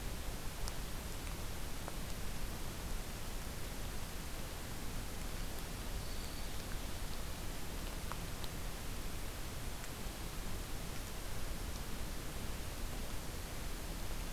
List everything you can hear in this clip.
Black-throated Green Warbler